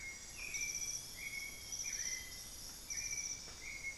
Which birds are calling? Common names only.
Black-faced Antthrush, Amazonian Grosbeak, White-necked Thrush